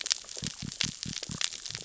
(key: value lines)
label: biophony
recorder: SoundTrap 600 or HydroMoth